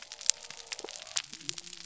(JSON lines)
{"label": "biophony", "recorder": "SoundTrap 300"}